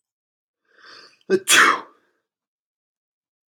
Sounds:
Sneeze